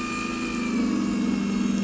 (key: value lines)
label: anthrophony, boat engine
recorder: SoundTrap 500